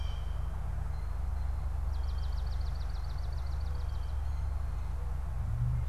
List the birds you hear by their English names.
Blue Jay, Swamp Sparrow